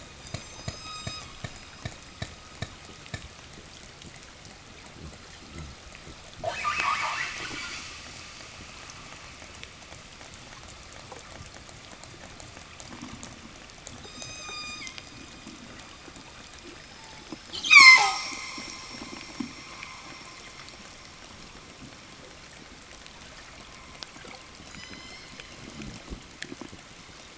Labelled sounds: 0.0	2.2	killer whale, southern resident, 0 to 8.0 kHz
6.1	8.1	killer whale, southern resident, call S10, 0 to 8.0 kHz
13.8	15.5	killer whale, southern resident, 0.64 to 8.0 kHz
17.4	19.2	killer whale, southern resident, 0.15 to 8.0 kHz
24.3	25.6	killer whale, southern resident, 0.65 to 8.0 kHz

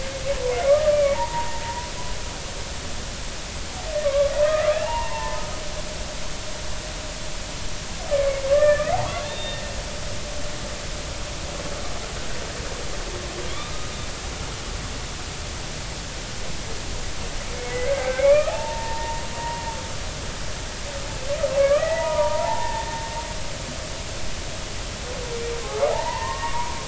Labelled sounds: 0.5	1.9	humpback whale, 0.83 to 2.4 kHz
4.0	5.4	humpback whale, 0.80 to 2.9 kHz
8.5	8.9	humpback whale, 1.1 to 1.9 kHz
9.2	9.6	humpback whale, 2.7 to 3.7 kHz
17.8	19.6	humpback whale, 0.80 to 2.6 kHz
21.6	22.9	humpback whale, 0.80 to 2.7 kHz
25.9	26.7	humpback whale, 0.80 to 2.0 kHz

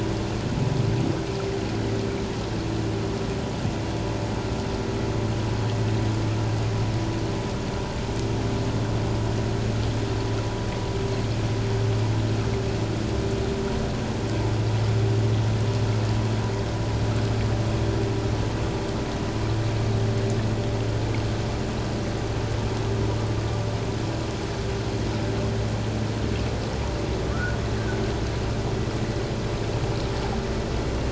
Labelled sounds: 27.3	27.6	humpback whale, 1.1 to 1.7 kHz

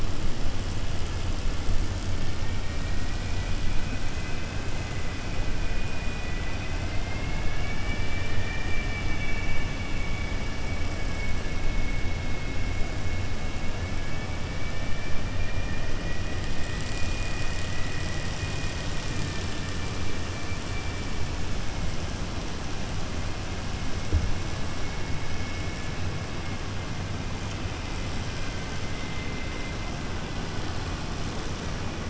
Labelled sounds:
8.3	10.3	killer whale, 1.7 to 3.5 kHz
14.5	15.8	killer whale, 1.7 to 2.8 kHz
20.6	21.2	killer whale, 1.7 to 2.8 kHz

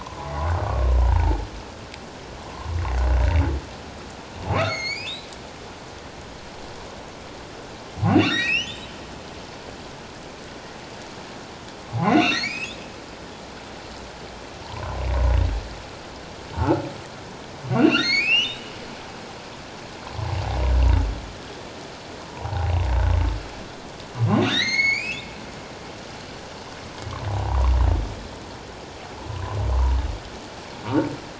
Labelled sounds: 0.0	0.3	humpback whale, 0.94 to 1.2 kHz
0.9	1.4	humpback whale, 0.81 to 1.1 kHz
4.6	5.2	humpback whale, 1.9 to 7.3 kHz
8.1	9.0	humpback whale, 1.7 to 7.9 kHz
11.9	12.8	humpback whale, 0.78 to 7.8 kHz
14.6	15.1	humpback whale, 0.84 to 1.1 kHz
17.7	18.7	humpback whale, 1.3 to 5.8 kHz
22.3	22.7	humpback whale, 0.78 to 1.0 kHz
24.3	25.3	humpback whale, 1.7 to 7.5 kHz
27.3	27.7	humpback whale, 0.78 to 1.2 kHz

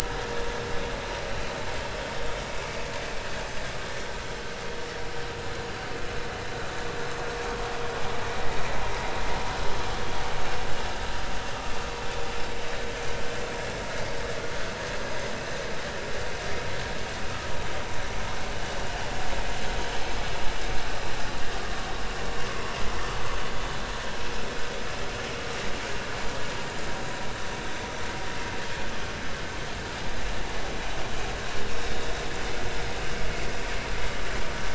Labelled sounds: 7.4	7.6	vessel noise, 3.2 to 3.3 kHz

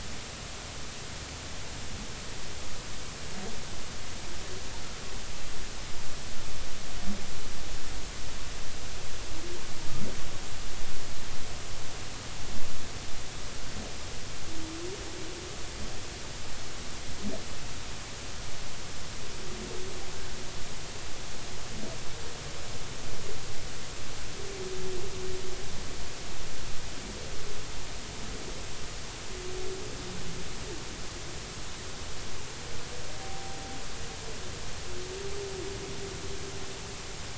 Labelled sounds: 33.2	33.6	humpback whale, 0.80 to 0.83 kHz

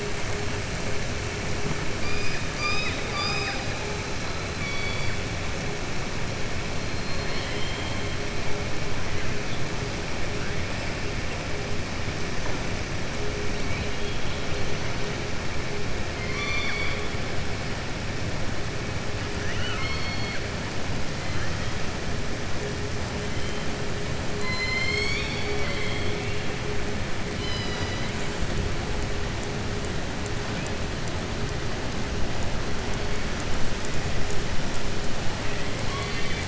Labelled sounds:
2.5	3.7	killer whale, southern resident, 0.78 to 6.0 kHz
4.5	5.2	killer whale, southern resident, 2.2 to 4.7 kHz
6.9	8.1	killer whale, southern resident, 1.7 to 4.4 kHz
13.6	14.4	killer whale, southern resident, 2.3 to 4.2 kHz
16.1	17.0	killer whale, southern resident, 1.1 to 5.9 kHz
19.4	20.4	killer whale, southern resident, 1.1 to 4.5 kHz
35.8	36.4	killer whale, southern resident, 1.1 to 4.6 kHz

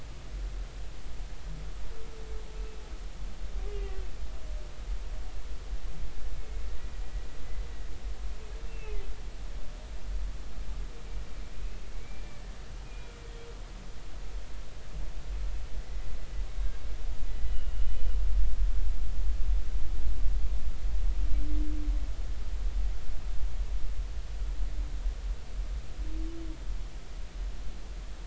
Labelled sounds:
3.7	4.0	humpback whale, 2.6 to 2.9 kHz
8.7	9.0	humpback whale, 2.5 to 2.8 kHz
11.5	13.2	humpback whale, 2.2 to 2.7 kHz
17.5	18.2	humpback whale, 2.8 to 3.0 kHz

